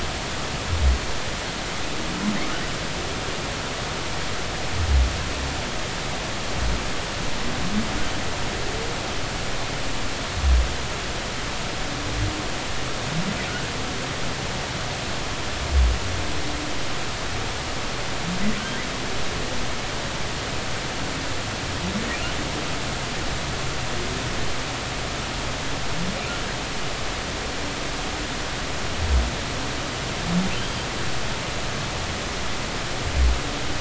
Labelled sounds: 30.6	30.9	humpback whale, 3.1 to 3.3 kHz

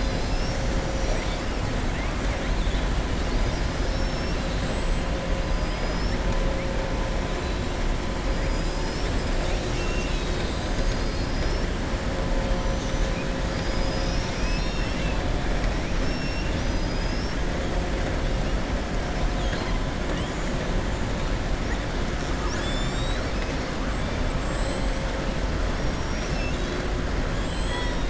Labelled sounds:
12.6	13.1	killer whale, southern resident, 5.9 to 6.9 kHz
16.1	16.6	killer whale, southern resident, 2.7 to 3.7 kHz
19.3	19.8	killer whale, southern resident, 1.0 to 5.2 kHz
27.3	28.0	killer whale, southern resident, 0.97 to 7.9 kHz

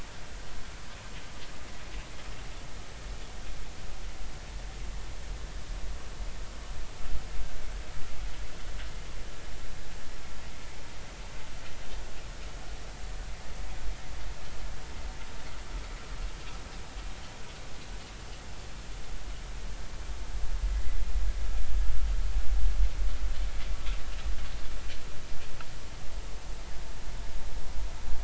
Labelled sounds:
20.7	21.0	vessel noise, 1.9 to 2.1 kHz

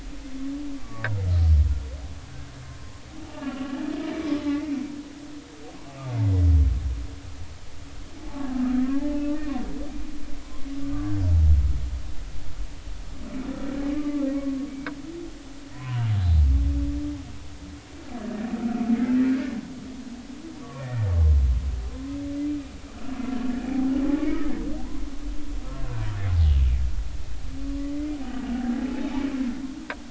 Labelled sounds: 3.3	3.8	humpback whale, 1.0 to 2.9 kHz
4.4	4.8	humpback whale, 2.0 to 2.2 kHz
9.0	9.5	humpback whale, 0.80 to 2.7 kHz
13.9	14.9	humpback whale, 1.0 to 2.3 kHz
15.7	16.1	humpback whale, 0.90 to 1.1 kHz
19.0	19.3	humpback whale, 1.5 to 1.8 kHz
20.6	21.1	humpback whale, 0.93 to 1.9 kHz
27.9	29.1	humpback whale, 0.80 to 2.1 kHz

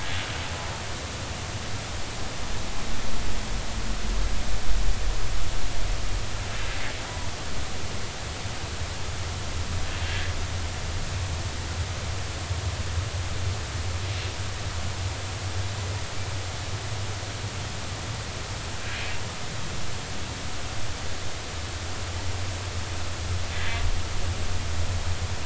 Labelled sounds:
23.5	23.8	humpback whale, 1.9 to 2.1 kHz

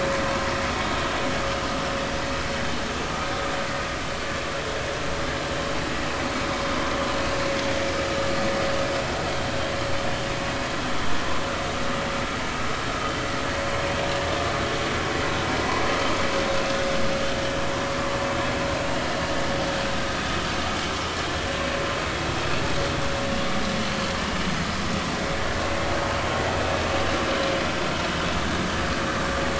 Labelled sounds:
23.9	24.1	vessel noise, 4.2 to 4.6 kHz

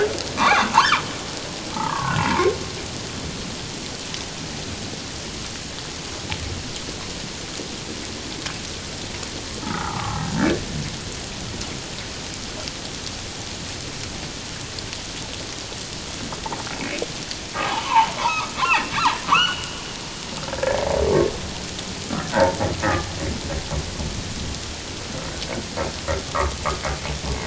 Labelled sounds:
0.4	1.0	humpback whale, 0.78 to 6.3 kHz
1.7	2.4	humpback whale, 0.81 to 2.8 kHz
9.6	10.6	humpback whale, 0.97 to 1.9 kHz
16.7	18.9	humpback whale, 0.78 to 3.0 kHz
19.3	19.8	humpback whale, 0.91 to 3.1 kHz
20.6	20.8	humpback whale, 1.6 to 1.8 kHz
22.3	23.1	humpback whale, 0.81 to 2.0 kHz

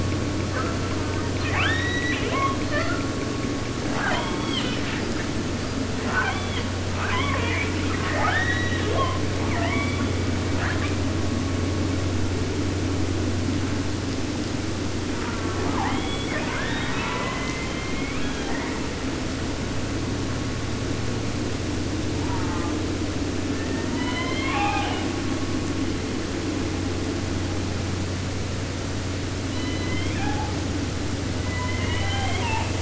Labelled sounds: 0.5	2.6	killer whale, southern resident, J pod, call S04 and call S02i, 0.50 to 6.2 kHz
2.6	3.1	killer whale, 0.50 to 6.3 kHz
3.8	5.2	killer whale, southern resident, 0.50 to 8.0 kHz
5.5	5.9	killer whale, 4.1 to 5.1 kHz
6.0	6.7	killer whale, southern resident, J pod, call S44, 0.50 to 3.9 kHz
6.8	11.0	killer whale, southern resident, 0.10 to 6.3 kHz
15.1	18.9	killer whale, 0.37 to 5.9 kHz
22.2	22.7	killer whale, southern resident, J pod, call S04, 0.50 to 3.0 kHz
23.3	25.1	killer whale, southern resident, J pod, call S01, 0.50 to 6.5 kHz
29.4	30.6	killer whale, southern resident, J pod, call S01, 0.50 to 4.4 kHz
31.3	32.8	killer whale, southern resident, J pod, call S01, 0.50 to 4.4 kHz

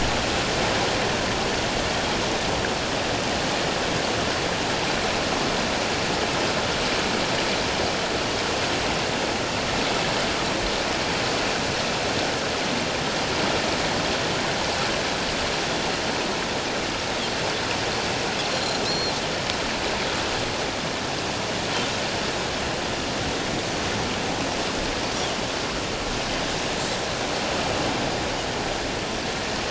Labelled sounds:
18.5	19.2	Pacific white-sided dolphin, 4.0 to 5.8 kHz

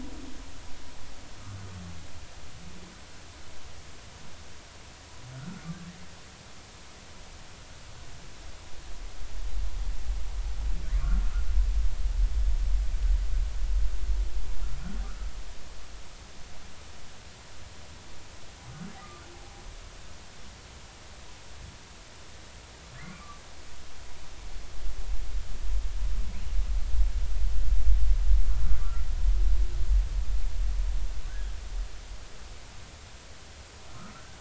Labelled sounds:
5.3	5.7	humpback whale, 1.3 to 1.5 kHz
20.0	20.2	humpback whale, 1.1 to 1.3 kHz
31.3	31.5	humpback whale, 1.4 to 1.7 kHz

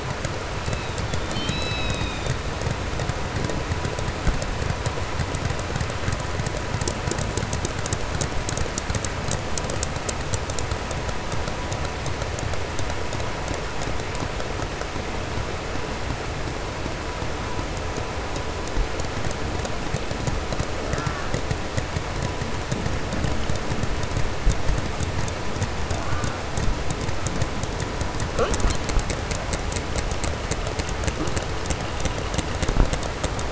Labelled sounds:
20.8	21.4	killer whale, southern resident, 0.53 to 2.0 kHz

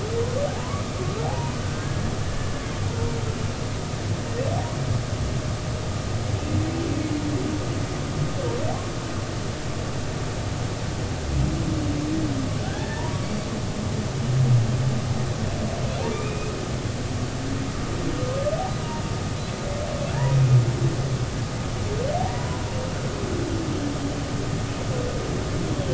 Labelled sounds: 0.5	0.8	humpback whale, 0.80 to 1.2 kHz
1.2	2.6	humpback whale, 0.80 to 1.8 kHz
12.6	13.5	humpback whale, 0.86 to 4.6 kHz
16.1	16.5	humpback whale, 2.3 to 2.6 kHz
20.1	20.4	humpback whale, 0.83 to 1.0 kHz
22.3	22.6	humpback whale, 0.93 to 1.1 kHz

